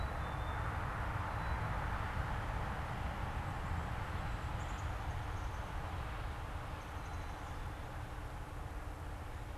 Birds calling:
Black-capped Chickadee (Poecile atricapillus)

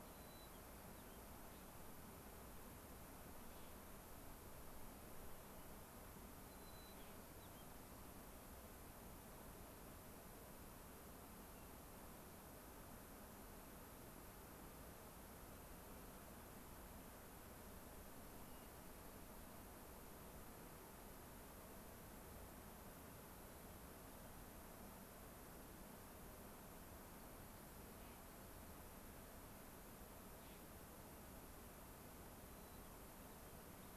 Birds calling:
Clark's Nutcracker (Nucifraga columbiana)
White-crowned Sparrow (Zonotrichia leucophrys)
unidentified bird

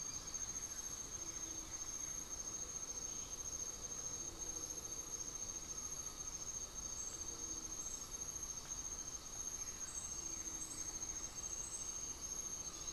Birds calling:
Blue-gray Saltator (Saltator coerulescens)
unidentified bird

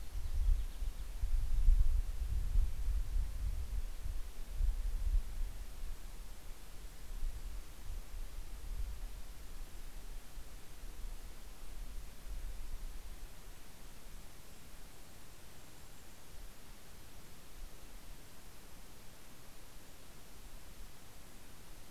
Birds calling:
Cassin's Finch (Haemorhous cassinii)

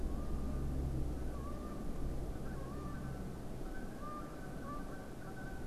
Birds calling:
Canada Goose (Branta canadensis)

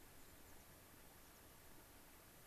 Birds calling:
American Pipit (Anthus rubescens)

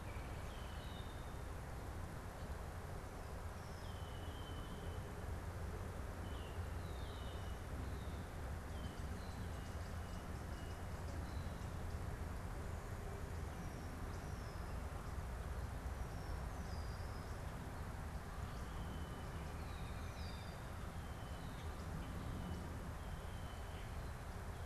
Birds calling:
European Starling (Sturnus vulgaris)
American Robin (Turdus migratorius)
Red-winged Blackbird (Agelaius phoeniceus)

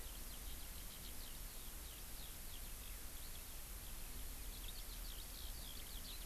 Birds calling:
Eurasian Skylark (Alauda arvensis)

